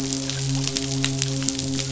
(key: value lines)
label: biophony, midshipman
recorder: SoundTrap 500